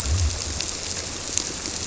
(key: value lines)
label: biophony
recorder: SoundTrap 300